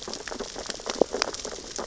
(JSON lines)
{"label": "biophony, sea urchins (Echinidae)", "recorder": "SoundTrap 600 or HydroMoth"}